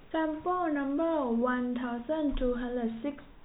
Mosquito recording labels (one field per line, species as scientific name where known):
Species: no mosquito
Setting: cup